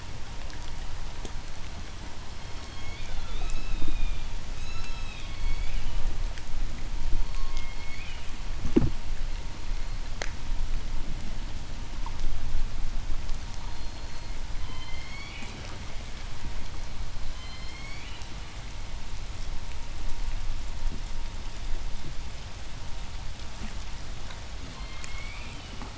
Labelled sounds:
0.9	5.9	killer whale, southern resident, J pod, 0.79 to 8.0 kHz
7.0	8.6	killer whale, southern resident, J pod, 0.99 to 5.2 kHz
13.1	14.6	killer whale, southern resident, J pod, 3.6 to 7.1 kHz
14.4	16.0	killer whale, southern resident, J pod, call S01, 0.68 to 8.0 kHz
17.0	18.5	killer whale, southern resident, J pod, call S01, 0.77 to 8.0 kHz
24.4	25.9	killer whale, southern resident, J pod, call S01, 0.97 to 4.9 kHz

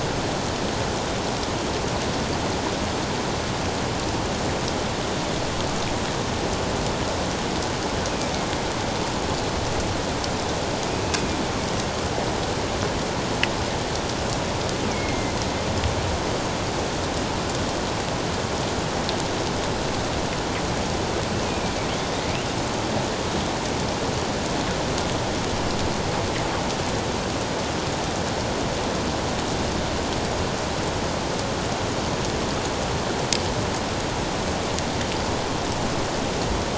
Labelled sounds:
14.9	15.3	killer whale, northern resident, A clan, AA subclan, A04 pod, 2.0 to 2.4 kHz
21.4	21.7	killer whale, northern resident, A clan, AA subclan, A04 pod, 2.3 to 2.6 kHz

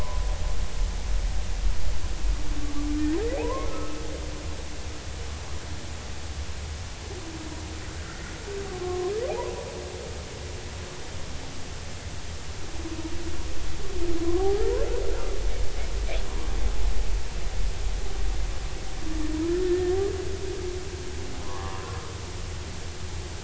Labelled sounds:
3.4	4.0	humpback whale, 0.80 to 1.4 kHz
7.9	8.2	humpback whale, 1.3 to 1.7 kHz
8.8	9.5	humpback whale, 0.80 to 1.2 kHz
14.4	14.7	humpback whale, 0.80 to 1.4 kHz
19.6	20.0	humpback whale, 1.7 to 1.9 kHz
21.4	22.0	humpback whale, 0.86 to 1.2 kHz

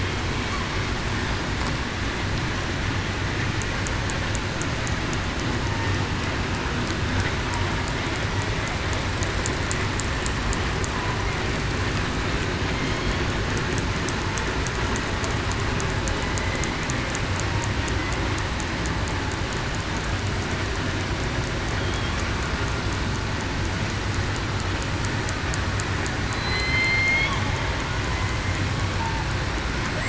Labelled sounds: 16.4	16.7	killer whale, southern resident, 2.0 to 2.1 kHz
26.3	27.3	killer whale, southern resident, 3.0 to 4.4 kHz

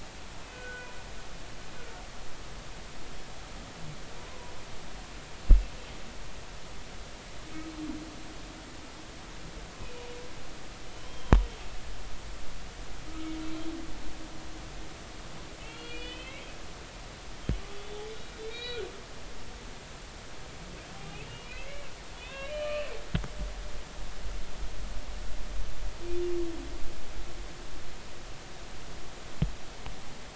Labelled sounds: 0.4	0.9	humpback whale, 1.4 to 2.7 kHz
4.3	4.5	humpback whale, 0.93 to 1.1 kHz
9.8	10.1	humpback whale, 2.4 to 2.6 kHz
11.1	11.4	humpback whale, 3.1 to 3.3 kHz
13.1	13.3	humpback whale, 1.2 to 1.4 kHz
15.6	16.5	humpback whale, 1.9 to 4.5 kHz
18.1	18.8	humpback whale, 2.3 to 4.5 kHz
21.1	22.9	humpback whale, 0.96 to 3.9 kHz

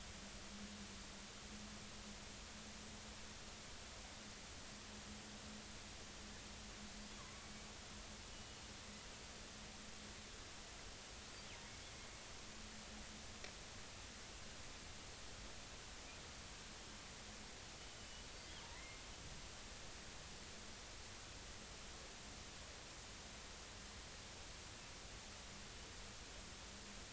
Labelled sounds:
7.2	7.5	killer whale, northern resident, 0.99 to 1.2 kHz
8.3	8.6	killer whale, northern resident, 2.9 to 3.0 kHz
18.0	19.0	killer whale, northern resident, 1.8 to 3.0 kHz

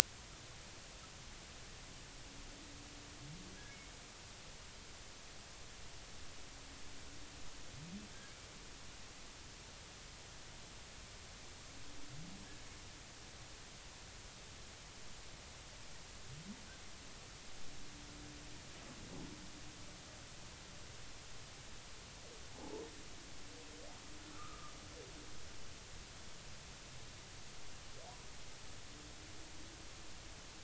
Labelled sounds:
22.5	22.8	humpback whale, 0.80 to 1.0 kHz
24.3	24.7	humpback whale, 1.1 to 1.4 kHz

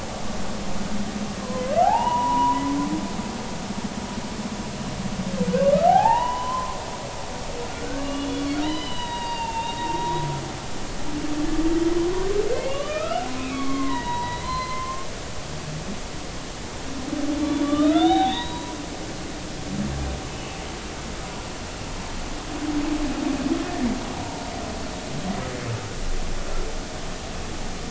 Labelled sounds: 1.4	2.6	humpback whale, 0.80 to 3.0 kHz
5.9	6.8	humpback whale, 0.80 to 3.1 kHz
7.7	8.3	humpback whale, 1.1 to 2.9 kHz
8.6	10.2	humpback whale, 0.83 to 4.8 kHz
12.0	15.1	humpback whale, 0.90 to 4.2 kHz
17.6	18.7	humpback whale, 0.80 to 4.0 kHz
23.6	23.9	humpback whale, 1.7 to 1.9 kHz

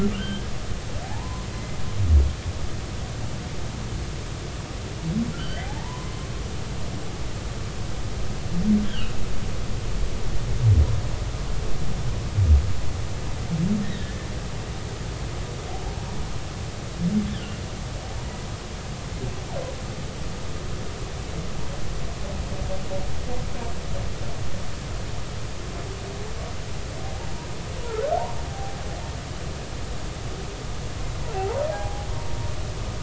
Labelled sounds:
0.1	0.5	humpback whale, 1.4 to 3.3 kHz
1.0	1.5	humpback whale, 0.80 to 1.1 kHz
5.3	6.3	humpback whale, 0.80 to 3.2 kHz
8.9	9.1	humpback whale, 2.5 to 3.5 kHz
13.8	14.3	humpback whale, 1.7 to 3.9 kHz
17.3	17.6	humpback whale, 2.6 to 3.7 kHz
27.9	28.8	humpback whale, 0.80 to 1.6 kHz
31.3	32.1	humpback whale, 0.80 to 0.99 kHz

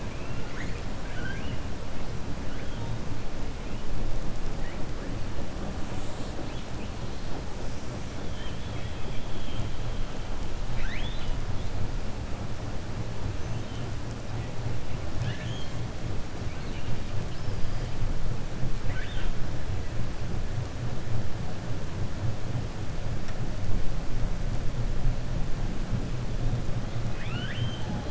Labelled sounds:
0.0	1.6	killer whale, 1.1 to 4.7 kHz
8.2	9.0	killer whale, 1.8 to 4.0 kHz
10.6	11.4	killer whale, 1.4 to 4.9 kHz
15.1	15.7	killer whale, 1.7 to 6.8 kHz
18.8	19.3	killer whale, 1.0 to 3.7 kHz
27.0	28.0	killer whale, 1.3 to 4.3 kHz

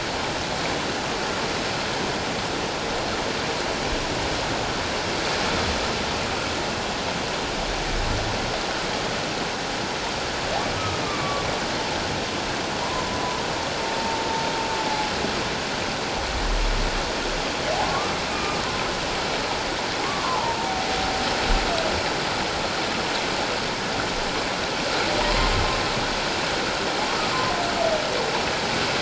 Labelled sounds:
11.0	11.5	humpback whale, 1.1 to 2.5 kHz
12.8	13.1	humpback whale, 0.91 to 1.1 kHz
13.8	14.2	humpback whale, 0.84 to 0.94 kHz
17.8	18.6	humpback whale, 1.0 to 2.5 kHz
20.0	20.7	humpback whale, 0.81 to 1.2 kHz

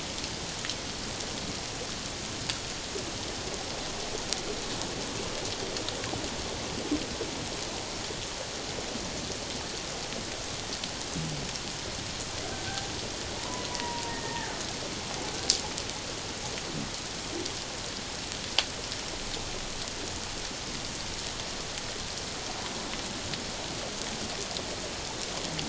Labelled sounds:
13.4	14.6	killer whale, Bigg's (transient), 0.81 to 1.9 kHz

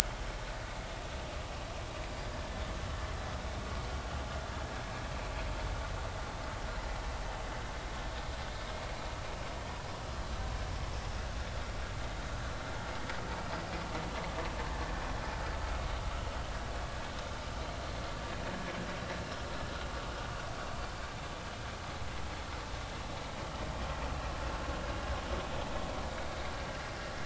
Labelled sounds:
2.3	2.6	vessel noise, 1.7 to 1.8 kHz

